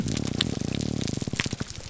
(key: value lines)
label: biophony, grouper groan
recorder: SoundTrap 300